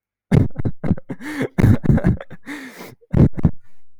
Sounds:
Laughter